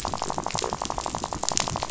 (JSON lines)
{"label": "biophony, rattle", "recorder": "SoundTrap 500"}